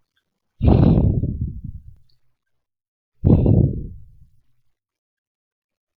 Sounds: Sigh